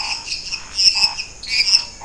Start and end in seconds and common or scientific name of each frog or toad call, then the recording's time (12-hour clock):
0.0	1.8	lesser tree frog
0.0	2.0	dwarf tree frog
0.0	2.0	Scinax fuscovarius
9:15pm